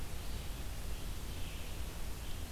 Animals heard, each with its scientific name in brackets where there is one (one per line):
Red-eyed Vireo (Vireo olivaceus)